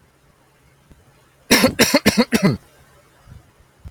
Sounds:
Cough